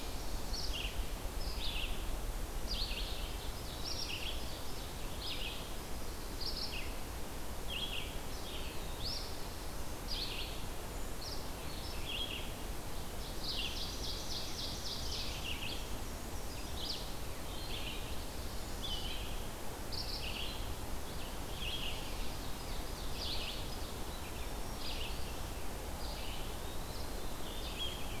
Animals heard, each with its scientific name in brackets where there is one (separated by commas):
Black-and-white Warbler (Mniotilta varia), Eastern Wood-Pewee (Contopus virens), Black-throated Green Warbler (Setophaga virens), Ovenbird (Seiurus aurocapilla), Black-throated Blue Warbler (Setophaga caerulescens), Red-eyed Vireo (Vireo olivaceus)